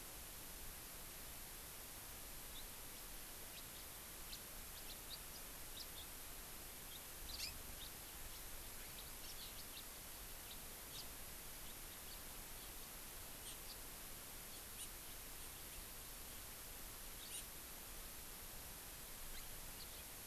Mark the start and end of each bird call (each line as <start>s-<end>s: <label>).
2.5s-2.7s: House Finch (Haemorhous mexicanus)
3.0s-3.1s: House Finch (Haemorhous mexicanus)
3.8s-3.9s: House Finch (Haemorhous mexicanus)
4.3s-4.4s: House Finch (Haemorhous mexicanus)
4.9s-5.4s: House Finch (Haemorhous mexicanus)
5.8s-6.1s: House Finch (Haemorhous mexicanus)
6.9s-7.0s: House Finch (Haemorhous mexicanus)
7.3s-7.9s: House Finch (Haemorhous mexicanus)
9.0s-9.9s: House Finch (Haemorhous mexicanus)
10.5s-10.6s: House Finch (Haemorhous mexicanus)
10.9s-11.1s: House Finch (Haemorhous mexicanus)
12.1s-12.2s: House Finch (Haemorhous mexicanus)
13.5s-13.8s: House Finch (Haemorhous mexicanus)
14.8s-14.9s: Hawaii Amakihi (Chlorodrepanis virens)
17.3s-17.5s: Hawaii Amakihi (Chlorodrepanis virens)
19.3s-19.5s: House Finch (Haemorhous mexicanus)
19.8s-19.9s: House Finch (Haemorhous mexicanus)